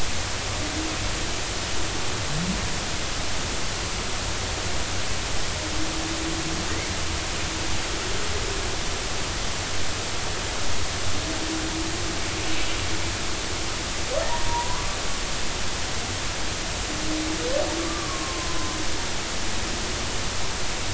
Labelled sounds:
14.3	14.8	humpback whale, 0.86 to 1.1 kHz
17.8	18.7	humpback whale, 0.96 to 1.2 kHz

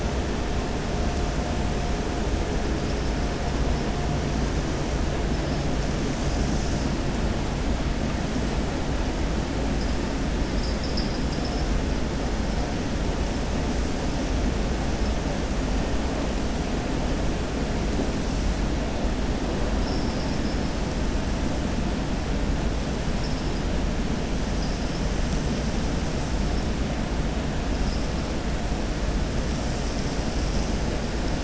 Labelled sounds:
19.7	20.6	vessel noise, 4.8 to 5.5 kHz

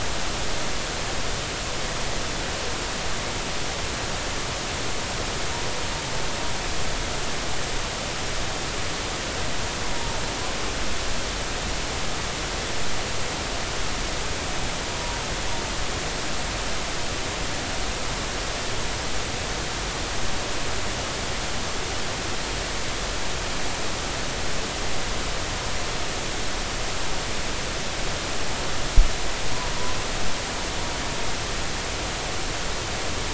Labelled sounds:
9.9	10.2	humpback whale, 0.90 to 0.96 kHz
14.9	15.2	humpback whale, 0.93 to 1.1 kHz

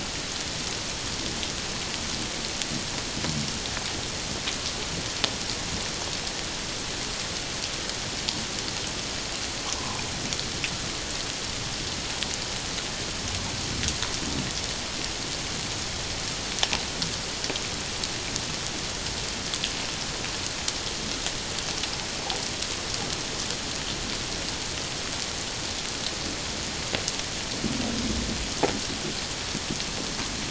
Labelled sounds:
9.8	10.0	humpback whale, 0.84 to 1.1 kHz

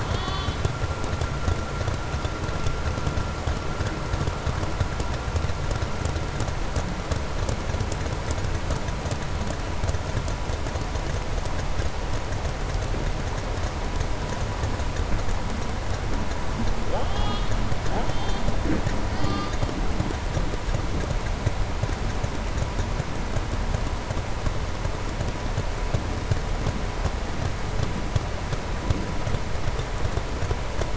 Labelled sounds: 0.0	0.7	killer whale, southern resident, 1.0 to 7.5 kHz

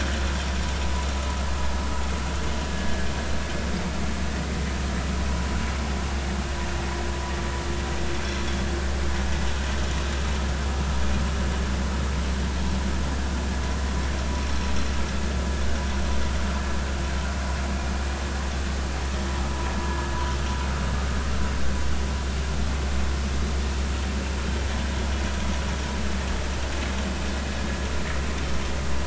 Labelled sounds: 2.7	2.9	vessel noise, 1.6 to 1.7 kHz

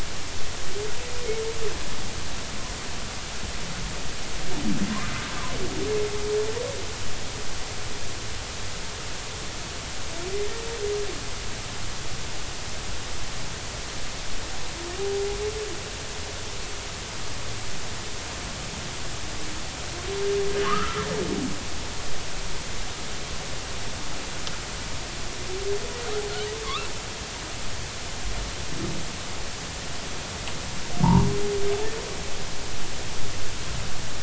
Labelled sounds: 20.6	21.1	humpback whale, 0.99 to 1.5 kHz
26.6	26.9	humpback whale, 0.99 to 1.4 kHz
31.0	31.3	humpback whale, 0.83 to 1.2 kHz

